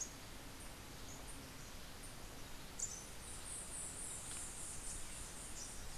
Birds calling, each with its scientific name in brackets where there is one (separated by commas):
Rufous-capped Warbler (Basileuterus rufifrons), White-eared Ground-Sparrow (Melozone leucotis)